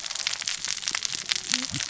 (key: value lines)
label: biophony, cascading saw
recorder: SoundTrap 600 or HydroMoth